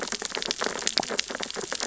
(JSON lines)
{"label": "biophony, sea urchins (Echinidae)", "recorder": "SoundTrap 600 or HydroMoth"}